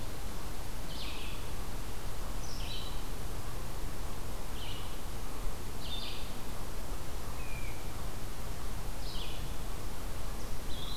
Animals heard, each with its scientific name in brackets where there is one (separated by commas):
Red-eyed Vireo (Vireo olivaceus)